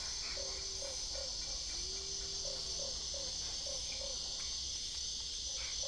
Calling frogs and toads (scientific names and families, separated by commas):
Boana lundii (Hylidae)